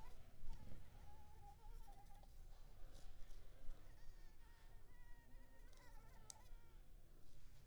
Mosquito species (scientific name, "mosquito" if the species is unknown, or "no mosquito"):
Anopheles arabiensis